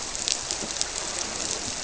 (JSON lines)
{"label": "biophony", "recorder": "SoundTrap 300"}